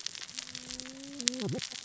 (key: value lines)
label: biophony, cascading saw
recorder: SoundTrap 600 or HydroMoth